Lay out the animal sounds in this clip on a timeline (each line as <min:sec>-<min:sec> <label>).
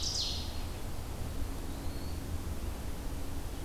0:00.0-0:00.6 Ovenbird (Seiurus aurocapilla)
0:01.5-0:02.3 Eastern Wood-Pewee (Contopus virens)